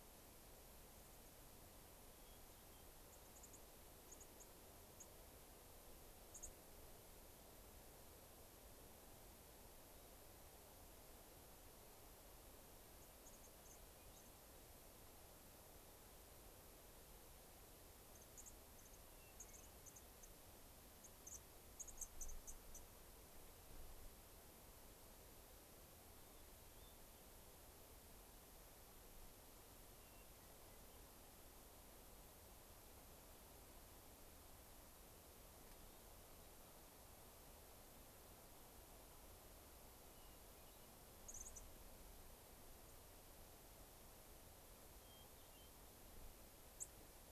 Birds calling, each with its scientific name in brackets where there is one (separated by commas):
Dark-eyed Junco (Junco hyemalis), Hermit Thrush (Catharus guttatus)